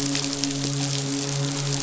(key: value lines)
label: biophony, midshipman
recorder: SoundTrap 500